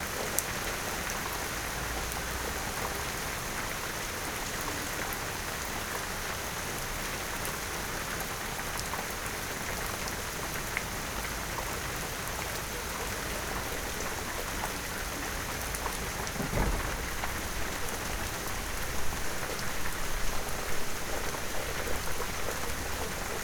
Is there water in the sound clip?
yes